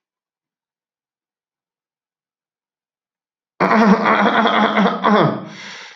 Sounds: Throat clearing